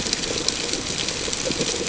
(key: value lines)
label: ambient
recorder: HydroMoth